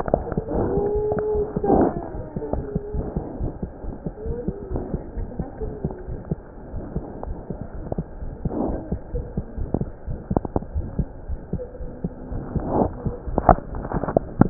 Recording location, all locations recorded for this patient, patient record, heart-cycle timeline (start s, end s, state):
aortic valve (AV)
aortic valve (AV)+mitral valve (MV)
#Age: Child
#Sex: Female
#Height: 76.0 cm
#Weight: 10.5 kg
#Pregnancy status: False
#Murmur: Absent
#Murmur locations: nan
#Most audible location: nan
#Systolic murmur timing: nan
#Systolic murmur shape: nan
#Systolic murmur grading: nan
#Systolic murmur pitch: nan
#Systolic murmur quality: nan
#Diastolic murmur timing: nan
#Diastolic murmur shape: nan
#Diastolic murmur grading: nan
#Diastolic murmur pitch: nan
#Diastolic murmur quality: nan
#Outcome: Abnormal
#Campaign: 2015 screening campaign
0.00	3.38	unannotated
3.38	3.52	S1
3.52	3.60	systole
3.60	3.70	S2
3.70	3.84	diastole
3.84	3.92	S1
3.92	4.02	systole
4.02	4.12	S2
4.12	4.26	diastole
4.26	4.38	S1
4.38	4.46	systole
4.46	4.56	S2
4.56	4.70	diastole
4.70	4.84	S1
4.84	4.92	systole
4.92	5.02	S2
5.02	5.16	diastole
5.16	5.30	S1
5.30	5.38	systole
5.38	5.46	S2
5.46	5.60	diastole
5.60	5.74	S1
5.74	5.82	systole
5.82	5.92	S2
5.92	6.08	diastole
6.08	6.18	S1
6.18	6.30	systole
6.30	6.42	S2
6.42	6.66	diastole
6.66	6.82	S1
6.82	6.94	systole
6.94	7.04	S2
7.04	7.26	diastole
7.26	7.38	S1
7.38	7.46	systole
7.46	7.56	S2
7.56	7.76	diastole
7.76	7.84	S1
7.84	7.96	systole
7.96	8.06	S2
8.06	8.22	diastole
8.22	8.34	S1
8.34	8.44	systole
8.44	8.54	S2
8.54	8.70	diastole
8.70	8.82	S1
8.82	8.90	systole
8.90	9.00	S2
9.00	9.14	diastole
9.14	9.26	S1
9.26	9.36	systole
9.36	9.43	S2
9.43	9.56	diastole
9.56	9.68	S1
9.68	9.78	systole
9.78	9.88	S2
9.88	10.06	diastole
10.06	10.18	S1
10.18	10.30	systole
10.30	10.37	S2
10.37	10.73	diastole
10.73	10.85	S1
10.85	10.94	systole
10.94	11.06	S2
11.06	11.26	diastole
11.26	11.40	S1
11.40	11.52	systole
11.52	11.62	S2
11.62	11.80	diastole
11.80	11.90	S1
11.90	12.02	systole
12.02	12.12	S2
12.12	12.30	diastole
12.30	12.44	S1
12.44	12.54	systole
12.54	12.64	S2
12.64	14.50	unannotated